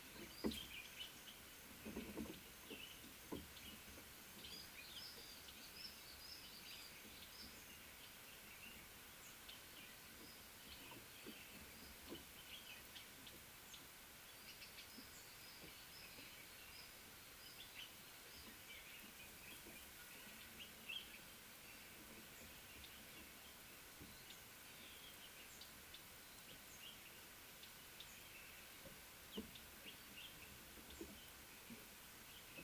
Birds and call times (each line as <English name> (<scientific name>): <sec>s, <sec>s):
Little Bee-eater (Merops pusillus): 5.9s